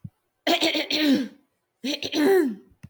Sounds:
Throat clearing